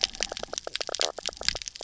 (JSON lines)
{"label": "biophony, knock croak", "recorder": "SoundTrap 300"}